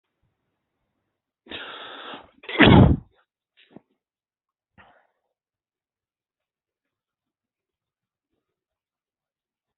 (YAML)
expert_labels:
- quality: ok
  cough_type: wet
  dyspnea: false
  wheezing: false
  stridor: false
  choking: false
  congestion: true
  nothing: false
  diagnosis: obstructive lung disease
  severity: mild
gender: female
respiratory_condition: false
fever_muscle_pain: false
status: healthy